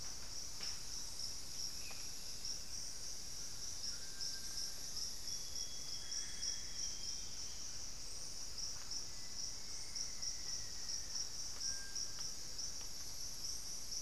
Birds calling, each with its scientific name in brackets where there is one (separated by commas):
Amazonian Grosbeak (Cyanoloxia rothschildii), Black-faced Antthrush (Formicarius analis), Scale-breasted Woodpecker (Celeus grammicus), Solitary Black Cacique (Cacicus solitarius), Bartlett's Tinamou (Crypturellus bartletti), Little Tinamou (Crypturellus soui), Hauxwell's Thrush (Turdus hauxwelli), Thrush-like Wren (Campylorhynchus turdinus)